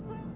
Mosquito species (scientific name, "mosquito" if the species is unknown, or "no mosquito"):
Aedes albopictus